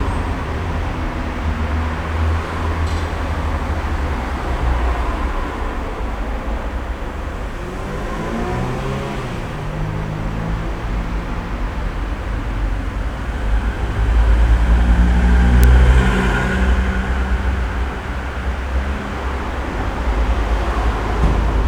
Can a person be heard screaming?
no